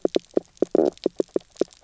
{"label": "biophony, knock croak", "recorder": "SoundTrap 300"}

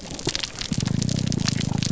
{"label": "biophony, grouper groan", "recorder": "SoundTrap 300"}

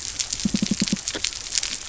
{"label": "biophony", "recorder": "SoundTrap 300"}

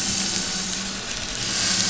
{"label": "anthrophony, boat engine", "recorder": "SoundTrap 500"}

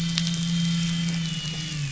{"label": "anthrophony, boat engine", "recorder": "SoundTrap 500"}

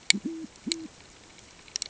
{"label": "ambient", "recorder": "HydroMoth"}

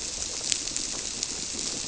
{"label": "biophony", "recorder": "SoundTrap 300"}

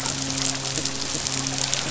{"label": "biophony, midshipman", "recorder": "SoundTrap 500"}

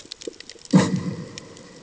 {"label": "anthrophony, bomb", "recorder": "HydroMoth"}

